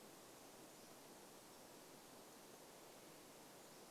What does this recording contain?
Pacific-slope Flycatcher song